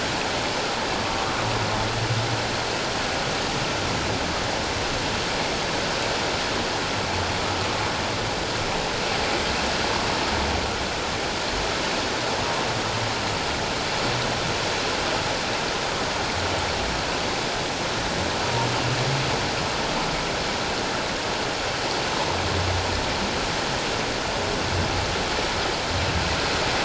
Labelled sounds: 1.0	1.4	humpback whale, 1.1 to 1.2 kHz

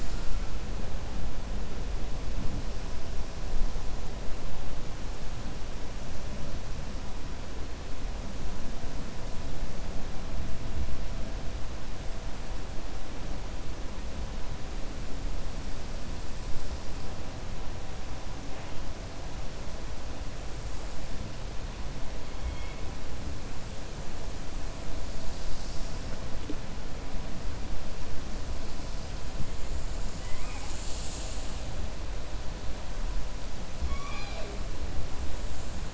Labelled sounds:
33.8	34.5	killer whale, 0.43 to 5.8 kHz

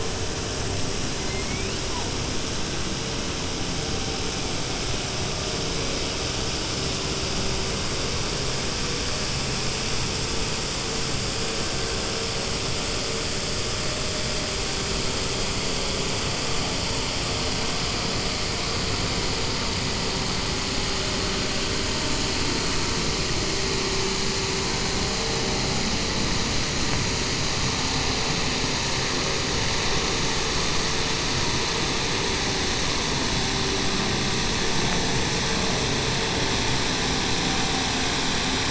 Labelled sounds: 1.0	1.9	killer whale, 1.4 to 5.6 kHz

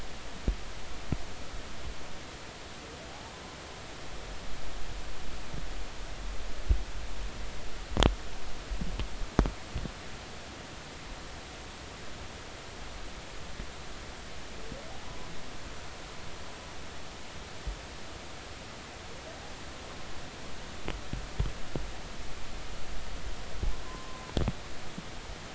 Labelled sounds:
14.9	15.3	humpback whale, 0.80 to 1.1 kHz
23.8	24.2	humpback whale, 0.96 to 1.1 kHz

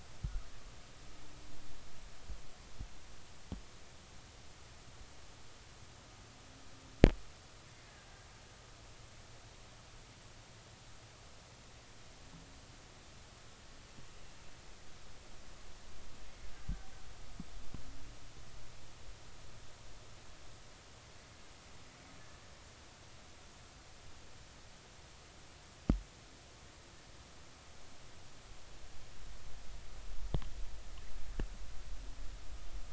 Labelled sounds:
7.9	8.3	killer whale, Bigg's (transient), 1.5 to 1.8 kHz

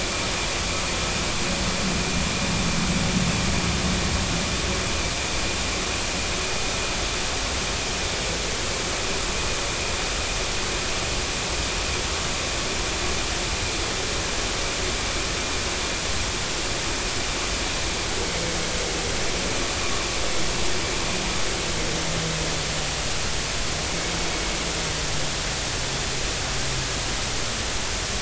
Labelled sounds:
19.8	20.1	vessel noise, 0.99 to 1.2 kHz

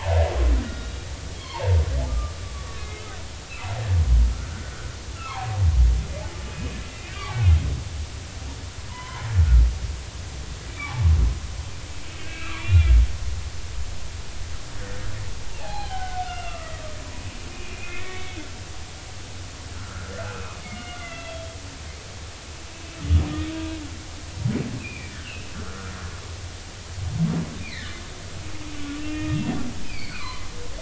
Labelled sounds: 0.6	1.8	humpback whale, 0.83 to 3.9 kHz
2.1	3.2	humpback whale, 1.1 to 3.9 kHz
3.5	3.8	humpback whale, 1.3 to 1.4 kHz
4.3	4.7	humpback whale, 1.2 to 1.6 kHz
5.2	5.6	humpback whale, 0.80 to 1.4 kHz
7.2	7.7	humpback whale, 2.0 to 3.3 kHz
8.9	9.3	humpback whale, 0.83 to 3.2 kHz
10.7	11.1	humpback whale, 0.80 to 2.4 kHz
12.1	12.9	humpback whale, 1.5 to 2.8 kHz
14.8	16.7	humpback whale, 0.80 to 2.9 kHz
17.5	18.4	humpback whale, 1.7 to 2.6 kHz
19.8	22.4	humpback whale, 1.2 to 3.4 kHz
23.5	23.8	humpback whale, 0.90 to 0.99 kHz
24.8	25.9	humpback whale, 1.2 to 3.2 kHz
27.6	27.9	humpback whale, 1.7 to 2.5 kHz
29.0	30.5	humpback whale, 2.0 to 4.8 kHz

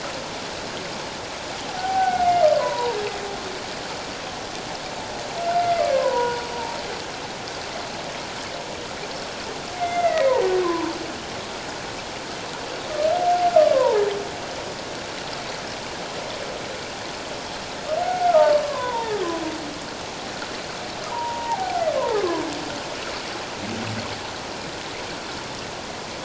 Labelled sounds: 1.7	3.0	humpback whale, 0.78 to 1.6 kHz
5.9	6.4	humpback whale, 0.91 to 1.6 kHz
9.8	11.0	humpback whale, 0.88 to 2.2 kHz
13.5	14.0	humpback whale, 0.81 to 1.4 kHz
18.0	19.2	humpback whale, 0.84 to 1.5 kHz
21.1	22.2	humpback whale, 0.78 to 1.1 kHz

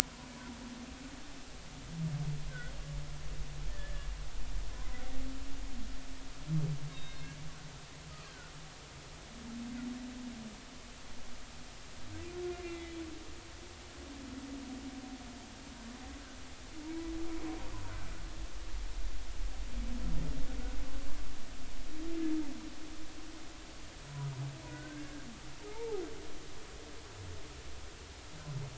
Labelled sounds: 3.7	5.0	humpback whale, 0.96 to 2.0 kHz
6.9	7.2	humpback whale, 3.6 to 3.8 kHz
8.3	8.5	humpback whale, 1.3 to 1.7 kHz
12.5	13.0	humpback whale, 2.0 to 2.5 kHz
24.7	26.0	humpback whale, 0.80 to 1.7 kHz

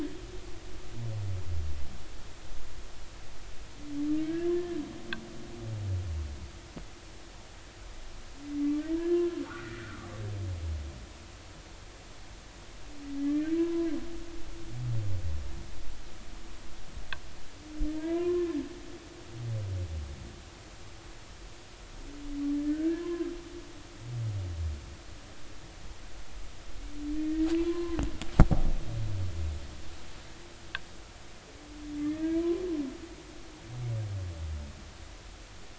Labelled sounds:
4.2	4.8	humpback whale, 1.5 to 1.8 kHz
8.9	10.1	humpback whale, 1.1 to 2.0 kHz
13.3	13.9	humpback whale, 0.96 to 1.9 kHz
17.9	18.6	humpback whale, 0.90 to 1.8 kHz
22.7	23.3	humpback whale, 0.96 to 1.8 kHz
27.6	28.0	humpback whale, 0.96 to 1.1 kHz
32.0	32.6	humpback whale, 0.96 to 2.0 kHz

